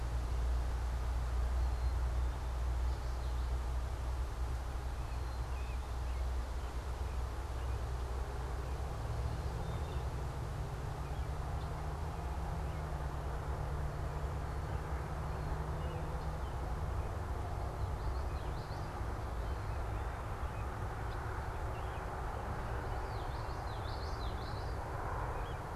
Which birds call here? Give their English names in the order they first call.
Black-capped Chickadee, American Robin, Common Yellowthroat